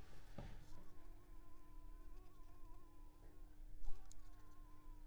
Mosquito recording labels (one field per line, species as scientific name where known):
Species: Anopheles coustani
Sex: female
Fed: unfed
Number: one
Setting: cup